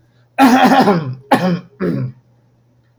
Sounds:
Throat clearing